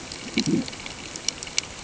{"label": "ambient", "recorder": "HydroMoth"}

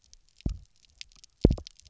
{"label": "biophony, double pulse", "recorder": "SoundTrap 300"}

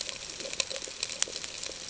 {"label": "ambient", "recorder": "HydroMoth"}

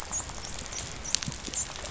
{"label": "biophony, dolphin", "recorder": "SoundTrap 500"}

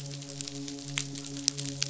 {"label": "biophony, midshipman", "recorder": "SoundTrap 500"}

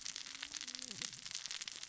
{"label": "biophony, cascading saw", "recorder": "SoundTrap 600 or HydroMoth"}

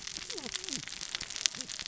{"label": "biophony, cascading saw", "recorder": "SoundTrap 600 or HydroMoth"}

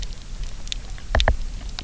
{"label": "biophony, knock", "recorder": "SoundTrap 300"}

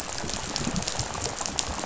{"label": "biophony, rattle", "recorder": "SoundTrap 500"}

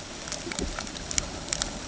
{"label": "ambient", "recorder": "HydroMoth"}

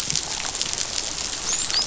{"label": "biophony, dolphin", "recorder": "SoundTrap 500"}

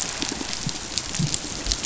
{"label": "biophony", "recorder": "SoundTrap 500"}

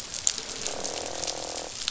{"label": "biophony, croak", "recorder": "SoundTrap 500"}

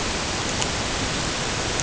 {"label": "ambient", "recorder": "HydroMoth"}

